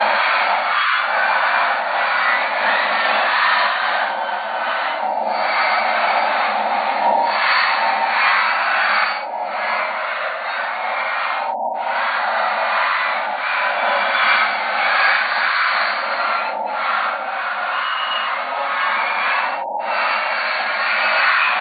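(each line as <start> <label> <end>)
0.0 Loud chaotic noise repeated. 21.6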